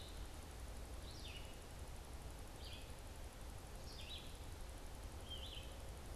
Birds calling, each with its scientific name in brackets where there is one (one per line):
Red-eyed Vireo (Vireo olivaceus)